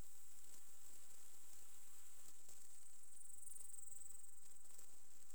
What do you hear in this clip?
Tettigonia cantans, an orthopteran